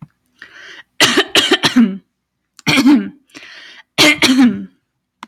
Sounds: Throat clearing